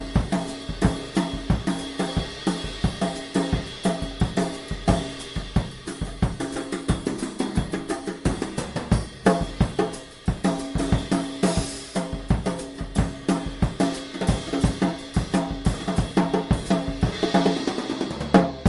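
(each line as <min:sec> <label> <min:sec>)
0:00.0 A drumset plays a steady beat. 0:18.7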